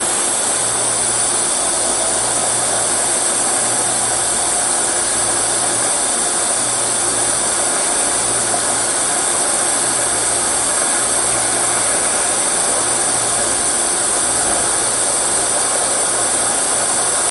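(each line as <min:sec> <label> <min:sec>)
0:00.0 A loud, steady noise of a gas boiler running indoors. 0:17.3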